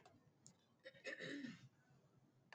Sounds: Throat clearing